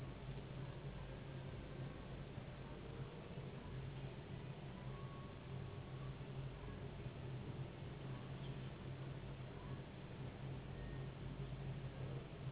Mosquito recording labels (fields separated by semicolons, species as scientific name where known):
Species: Anopheles gambiae s.s.; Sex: female; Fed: unfed; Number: one; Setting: insect culture